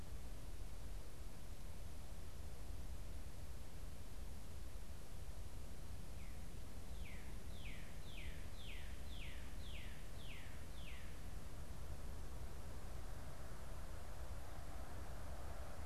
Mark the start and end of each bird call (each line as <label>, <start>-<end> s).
Northern Cardinal (Cardinalis cardinalis), 6.9-11.2 s